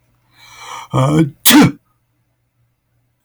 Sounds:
Sneeze